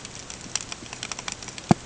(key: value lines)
label: ambient
recorder: HydroMoth